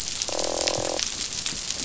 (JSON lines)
{"label": "biophony, croak", "recorder": "SoundTrap 500"}